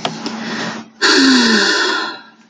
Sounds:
Sigh